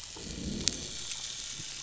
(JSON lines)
{"label": "biophony, growl", "recorder": "SoundTrap 500"}
{"label": "anthrophony, boat engine", "recorder": "SoundTrap 500"}